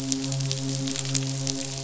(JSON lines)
{"label": "biophony, midshipman", "recorder": "SoundTrap 500"}